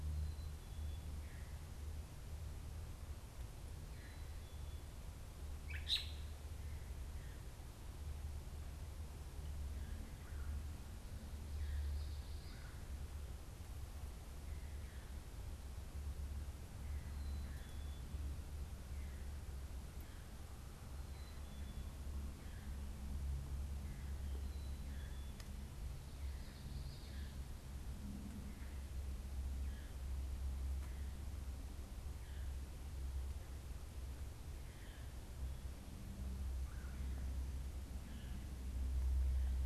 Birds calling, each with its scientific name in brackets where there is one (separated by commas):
Common Yellowthroat (Geothlypis trichas), Red-bellied Woodpecker (Melanerpes carolinus), Veery (Catharus fuscescens), Black-capped Chickadee (Poecile atricapillus), Gray Catbird (Dumetella carolinensis)